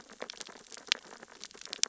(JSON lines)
{"label": "biophony, sea urchins (Echinidae)", "recorder": "SoundTrap 600 or HydroMoth"}